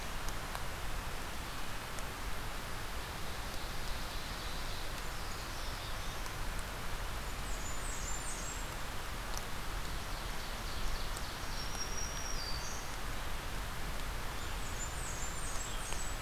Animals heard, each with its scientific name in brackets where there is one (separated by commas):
Blackburnian Warbler (Setophaga fusca), Black-throated Green Warbler (Setophaga virens), Black-throated Blue Warbler (Setophaga caerulescens), Ovenbird (Seiurus aurocapilla)